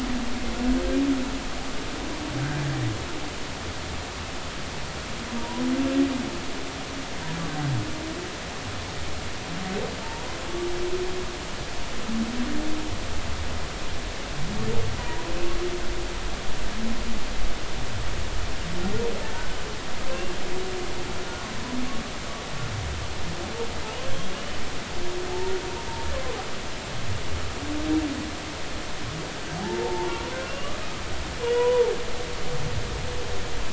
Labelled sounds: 5.4	5.6	humpback whale, 0.90 to 1.0 kHz
11.0	11.3	humpback whale, 0.86 to 0.99 kHz
15.0	15.2	humpback whale, 0.90 to 1.0 kHz
20.1	20.3	humpback whale, 2.6 to 2.8 kHz
24.3	24.6	humpback whale, 2.8 to 3.0 kHz
29.6	30.8	humpback whale, 0.80 to 2.9 kHz
31.5	31.9	humpback whale, 0.80 to 1.1 kHz

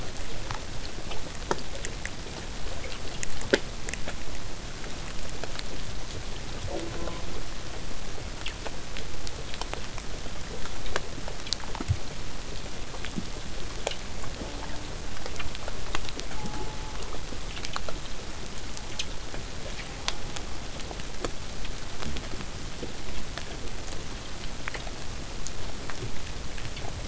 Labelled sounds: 6.7	7.4	killer whale, southern resident, J pod, call S04, 0.12 to 1.3 kHz
14.3	14.9	killer whale, southern resident, J pod, call S04, 0.15 to 1.3 kHz
16.3	17.0	killer whale, southern resident, J pod, call S04, 0.08 to 1.6 kHz
22.1	27.0	vessel noise, 0 to 8.0 kHz

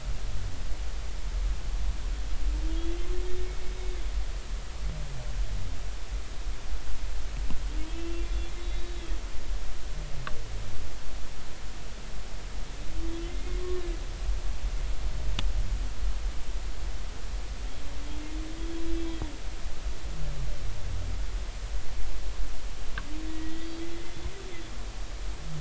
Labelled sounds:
2.7	4.0	humpback whale, 3.2 to 3.7 kHz
7.9	9.0	humpback whale, 2.6 to 3.9 kHz
13.3	13.6	humpback whale, 2.0 to 2.2 kHz
23.3	24.2	humpback whale, 1.9 to 3.4 kHz

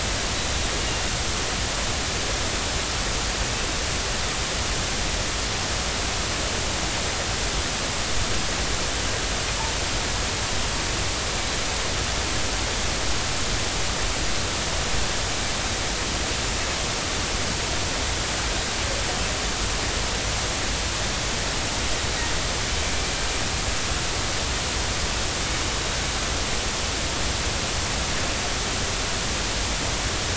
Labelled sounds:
0.8	1.1	killer whale, northern resident, 2.7 to 2.9 kHz

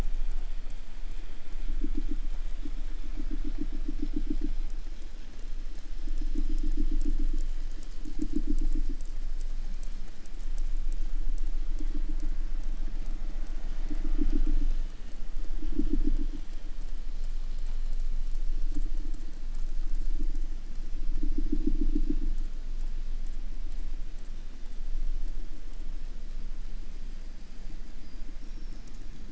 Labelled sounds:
27.8	29.2	killer whale, 4.0 to 6.4 kHz

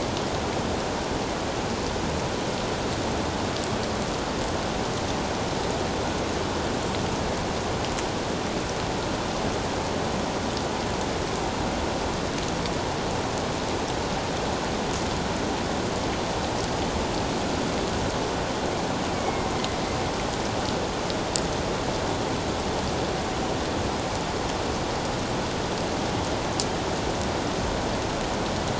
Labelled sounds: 19.1	19.5	killer whale, northern resident, A clan, AA subclan, A04 pod, call N04, 2.0 to 2.3 kHz

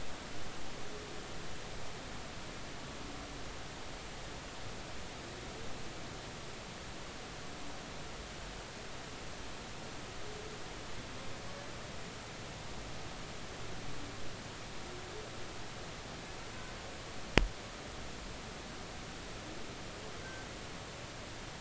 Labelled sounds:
20.2	20.5	humpback whale, 1.5 to 1.6 kHz

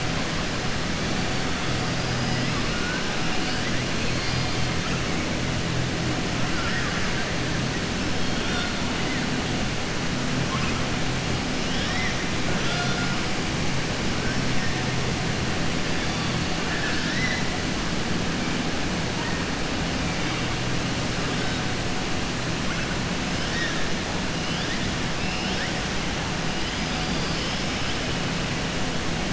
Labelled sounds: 6.5	7.2	killer whale, southern resident, 1.1 to 2.3 kHz
11.6	12.2	killer whale, southern resident, 1.2 to 5.9 kHz
16.6	17.4	killer whale, southern resident, 1.4 to 5.8 kHz

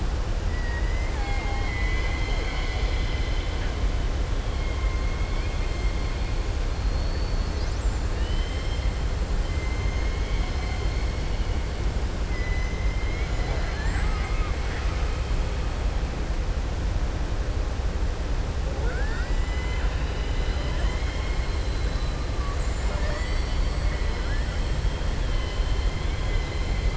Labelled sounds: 5.2	5.7	killer whale, southern resident, 1.7 to 3.4 kHz
8.1	8.8	killer whale, southern resident, 1.9 to 5.4 kHz
12.3	12.8	killer whale, southern resident, 2.0 to 3.0 kHz
21.4	22.1	killer whale, southern resident, 3.2 to 4.3 kHz
23.8	24.6	killer whale, southern resident, 1.4 to 2.2 kHz
25.2	26.9	killer whale, southern resident, 1.6 to 4.2 kHz

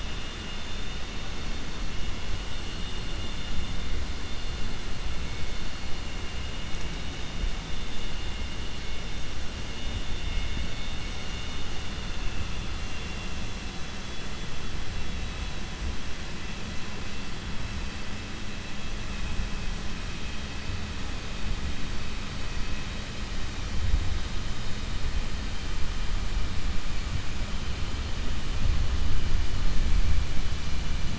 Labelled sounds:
11.9	12.5	vessel noise, 2.6 to 4.3 kHz
12.8	13.5	vessel noise, 1.9 to 3.5 kHz

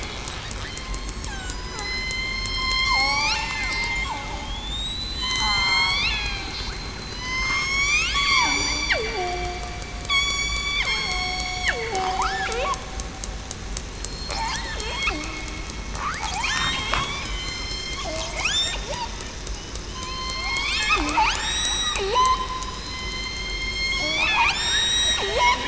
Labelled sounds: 1.5	2.5	killer whale, southern resident, 0.80 to 4.2 kHz
2.7	4.1	killer whale, southern resident, 1.7 to 6.8 kHz
4.6	5.7	killer whale, southern resident, 6.9 to 8.0 kHz
6.1	6.5	killer whale, southern resident, 1.5 to 4.1 kHz
7.1	8.4	killer whale, southern resident, 2.9 to 7.7 kHz
8.9	9.6	killer whale, southern resident, 0.33 to 0.82 kHz
10.1	10.4	killer whale, southern resident, 1.1 to 1.2 kHz
10.8	11.4	killer whale, southern resident, 2.1 to 2.2 kHz
11.7	12.6	killer whale, southern resident, 0.35 to 4.0 kHz
14.0	15.1	killer whale, southern resident, 3.2 to 4.3 kHz
16.2	16.6	killer whale, southern resident, 0.70 to 1.1 kHz
17.2	18.0	killer whale, southern resident, 2.0 to 7.4 kHz
19.9	21.0	killer whale, southern resident, 1.0 to 3.6 kHz
21.4	24.2	killer whale, southern resident, 0.89 to 7.8 kHz
24.5	25.2	killer whale, southern resident, 1.8 to 8.0 kHz

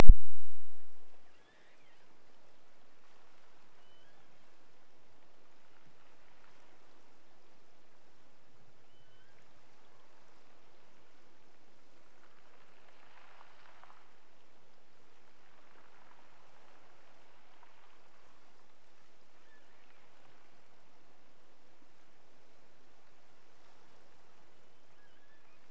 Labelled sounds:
1.2	2.2	killer whale, offshore, 1.2 to 4.1 kHz
3.8	4.6	killer whale, offshore, 1.3 to 3.7 kHz
8.8	9.6	killer whale, offshore, 1.2 to 3.5 kHz
19.3	20.0	killer whale, offshore, 1.5 to 3.6 kHz
24.9	25.6	killer whale, offshore, 1.5 to 3.7 kHz

